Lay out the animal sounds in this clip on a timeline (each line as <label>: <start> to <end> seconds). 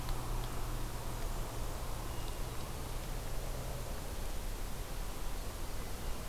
Hermit Thrush (Catharus guttatus): 2.0 to 3.0 seconds